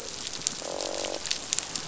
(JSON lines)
{"label": "biophony, croak", "recorder": "SoundTrap 500"}